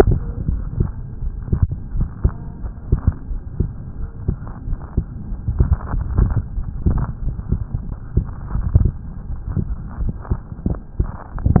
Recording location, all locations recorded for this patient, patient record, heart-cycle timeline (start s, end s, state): aortic valve (AV)
aortic valve (AV)+pulmonary valve (PV)+tricuspid valve (TV)+mitral valve (MV)
#Age: Child
#Sex: Male
#Height: 136.0 cm
#Weight: 26.3 kg
#Pregnancy status: False
#Murmur: Absent
#Murmur locations: nan
#Most audible location: nan
#Systolic murmur timing: nan
#Systolic murmur shape: nan
#Systolic murmur grading: nan
#Systolic murmur pitch: nan
#Systolic murmur quality: nan
#Diastolic murmur timing: nan
#Diastolic murmur shape: nan
#Diastolic murmur grading: nan
#Diastolic murmur pitch: nan
#Diastolic murmur quality: nan
#Outcome: Normal
#Campaign: 2015 screening campaign
0.00	3.26	unannotated
3.26	3.40	S1
3.40	3.56	systole
3.56	3.68	S2
3.68	3.95	diastole
3.95	4.10	S1
4.10	4.24	systole
4.24	4.38	S2
4.38	4.64	diastole
4.64	4.80	S1
4.80	4.94	systole
4.94	5.06	S2
5.06	5.26	diastole
5.26	5.40	S1
5.40	5.54	systole
5.54	5.68	S2
5.68	5.92	diastole
5.92	6.04	S1
6.04	6.16	systole
6.16	6.30	S2
6.30	6.54	diastole
6.54	6.64	S1
6.64	6.84	systole
6.84	7.00	S2
7.00	7.21	diastole
7.21	7.36	S1
7.36	7.47	systole
7.47	7.62	S2
7.62	7.84	diastole
7.84	7.98	S1
7.98	8.14	systole
8.14	8.28	S2
8.28	8.49	diastole
8.49	8.66	S1
8.66	8.76	systole
8.76	8.92	S2
8.92	9.23	diastole
9.23	9.39	S1
9.39	11.60	unannotated